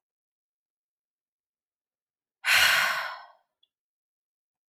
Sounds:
Sigh